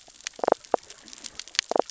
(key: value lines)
label: biophony, damselfish
recorder: SoundTrap 600 or HydroMoth